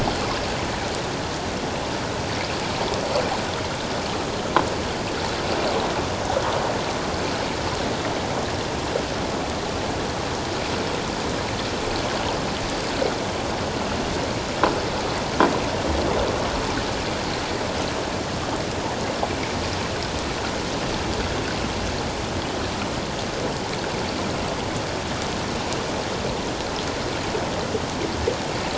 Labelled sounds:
19.2	19.5	water noise, 2.1 to 2.4 kHz

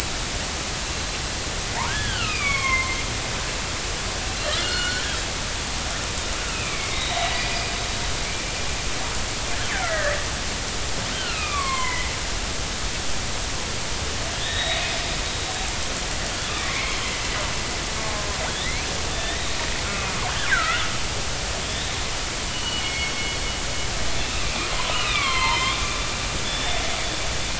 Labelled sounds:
1.9	3.0	killer whale, northern resident, 0.99 to 3.6 kHz
4.6	5.0	killer whale, northern resident, 1.4 to 4.4 kHz
6.5	7.6	killer whale, northern resident, 1.9 to 4.0 kHz
9.7	10.2	killer whale, northern resident, 1.2 to 2.3 kHz
11.1	12.1	killer whale, northern resident, 0.93 to 3.3 kHz
14.4	15.2	killer whale, northern resident, 1.7 to 5.1 kHz
16.5	17.0	killer whale, northern resident, 0.99 to 2.4 kHz
18.5	19.6	killer whale, northern resident, 1.6 to 3.9 kHz
19.9	20.8	killer whale, northern resident, 1.2 to 2.6 kHz
21.6	23.1	killer whale, northern resident, 2.1 to 3.8 kHz
24.2	25.8	killer whale, northern resident, 0.83 to 4.4 kHz
26.4	26.8	killer whale, northern resident, 3.3 to 3.6 kHz

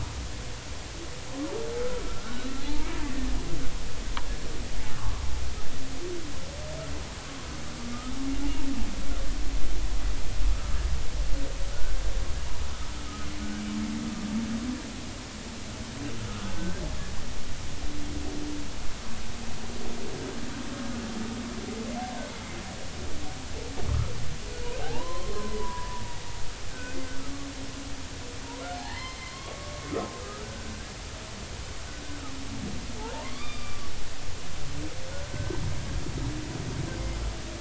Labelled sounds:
2.0	2.5	humpback whale, 1.2 to 1.6 kHz
5.0	5.2	humpback whale, 0.83 to 1.2 kHz
13.0	13.3	humpback whale, 1.2 to 1.3 kHz
16.3	16.8	humpback whale, 1.2 to 1.7 kHz
24.8	26.0	humpback whale, 0.80 to 1.8 kHz
26.7	27.0	humpback whale, 1.3 to 1.6 kHz
28.8	30.7	humpback whale, 0.80 to 4.4 kHz
33.0	33.9	humpback whale, 0.80 to 4.8 kHz
35.3	35.6	humpback whale, 1.5 to 1.6 kHz

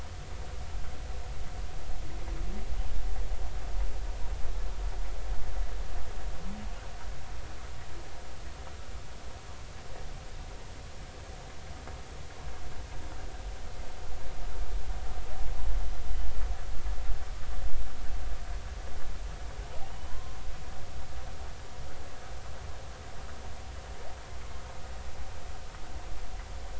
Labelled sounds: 20.0	20.4	humpback whale, 0.93 to 1.1 kHz

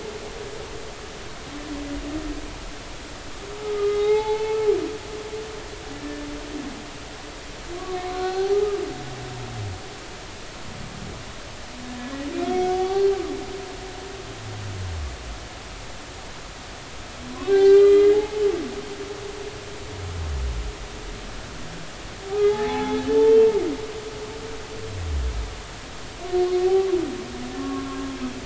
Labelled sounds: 3.6	4.6	humpback whale, 0.80 to 4.4 kHz
7.7	8.6	humpback whale, 0.80 to 4.4 kHz
11.8	12.1	humpback whale, 1.7 to 1.8 kHz
12.5	13.1	humpback whale, 0.80 to 0.83 kHz
17.5	18.2	humpback whale, 0.80 to 4.4 kHz
22.3	23.4	humpback whale, 0.80 to 3.2 kHz

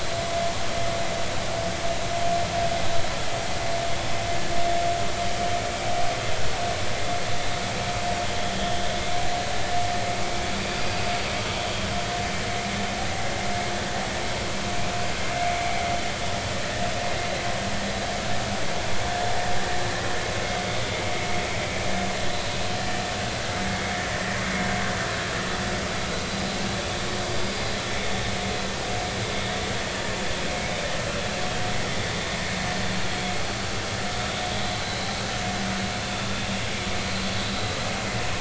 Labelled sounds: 34.6	35.0	vessel noise, 3.8 to 4.2 kHz

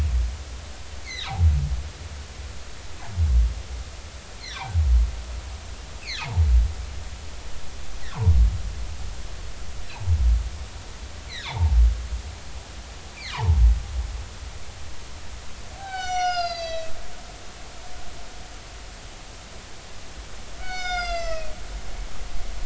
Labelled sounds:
1.0	1.3	humpback whale, 1.5 to 4.6 kHz
4.5	4.8	humpback whale, 0.80 to 1.2 kHz
11.5	11.8	humpback whale, 0.80 to 1.2 kHz
13.3	13.6	humpback whale, 0.80 to 1.3 kHz
15.8	16.9	humpback whale, 0.80 to 7.3 kHz
20.6	21.5	humpback whale, 1.2 to 8.0 kHz

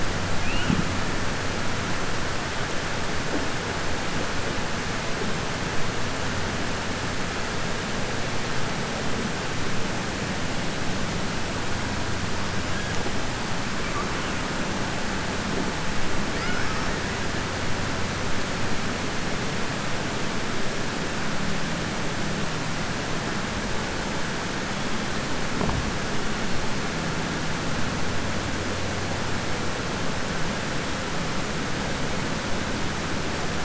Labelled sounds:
16.3	16.9	killer whale, southern resident, 1.1 to 2.9 kHz

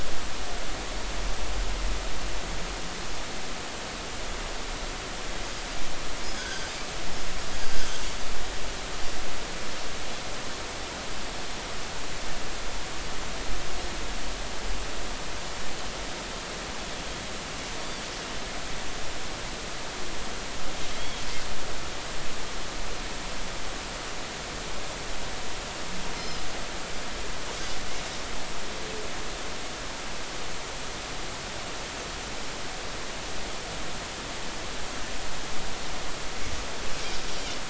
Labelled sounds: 6.2	6.7	Pacific white-sided dolphin, 1.4 to 5.2 kHz
21.0	21.2	Pacific white-sided dolphin, 3.2 to 3.4 kHz
26.2	26.5	Pacific white-sided dolphin, 4.9 to 5.3 kHz

